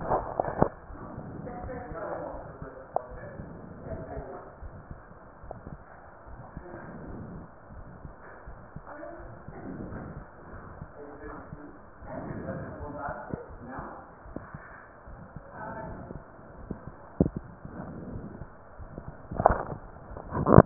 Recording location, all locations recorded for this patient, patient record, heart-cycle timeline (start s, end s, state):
aortic valve (AV)
aortic valve (AV)+pulmonary valve (PV)+tricuspid valve (TV)+mitral valve (MV)
#Age: Child
#Sex: Female
#Height: 130.0 cm
#Weight: 36.9 kg
#Pregnancy status: False
#Murmur: Present
#Murmur locations: aortic valve (AV)+mitral valve (MV)+pulmonary valve (PV)+tricuspid valve (TV)
#Most audible location: pulmonary valve (PV)
#Systolic murmur timing: Early-systolic
#Systolic murmur shape: Plateau
#Systolic murmur grading: II/VI
#Systolic murmur pitch: Low
#Systolic murmur quality: Blowing
#Diastolic murmur timing: nan
#Diastolic murmur shape: nan
#Diastolic murmur grading: nan
#Diastolic murmur pitch: nan
#Diastolic murmur quality: nan
#Outcome: Abnormal
#Campaign: 2015 screening campaign
0.00	3.85	unannotated
3.85	3.99	S1
3.99	4.13	systole
4.13	4.26	S2
4.26	4.59	diastole
4.59	4.72	S1
4.72	4.86	systole
4.86	4.99	S2
4.99	5.42	diastole
5.42	5.54	S1
5.54	5.68	systole
5.68	5.79	S2
5.79	6.23	diastole
6.23	6.38	S1
6.38	6.54	systole
6.54	6.63	S2
6.63	7.06	diastole
7.06	7.19	S1
7.19	7.31	systole
7.31	7.41	S2
7.41	7.69	diastole
7.69	7.85	S1
7.85	8.01	systole
8.01	8.12	S2
8.12	8.44	diastole
8.44	8.58	S1
8.58	8.72	systole
8.72	8.84	S2
8.84	9.17	diastole
9.17	9.29	S1
9.29	9.47	systole
9.47	9.53	S2
9.53	9.85	diastole
9.85	10.01	S1
10.01	10.13	systole
10.13	10.25	S2
10.25	10.50	diastole
10.50	10.64	S1
10.64	10.79	systole
10.79	10.88	S2
10.88	20.66	unannotated